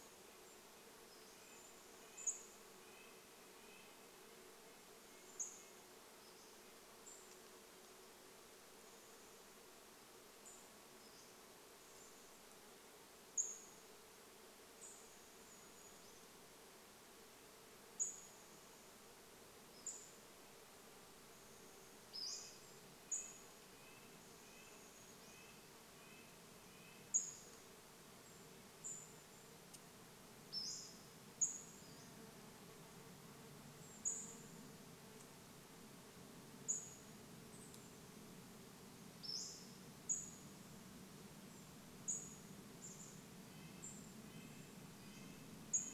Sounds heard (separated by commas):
Brown Creeper call, Red-breasted Nuthatch song, Pacific-slope Flycatcher call, Golden-crowned Kinglet song, Chestnut-backed Chickadee call, insect buzz